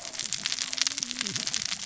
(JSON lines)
{"label": "biophony, cascading saw", "recorder": "SoundTrap 600 or HydroMoth"}